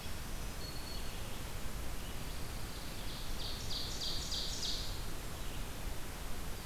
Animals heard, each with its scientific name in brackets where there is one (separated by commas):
Ovenbird (Seiurus aurocapilla), Red-eyed Vireo (Vireo olivaceus), Black-throated Green Warbler (Setophaga virens), Pine Warbler (Setophaga pinus)